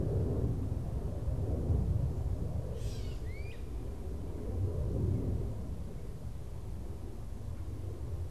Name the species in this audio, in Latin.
Dumetella carolinensis, Myiarchus crinitus